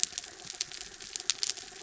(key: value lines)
label: anthrophony, mechanical
recorder: SoundTrap 300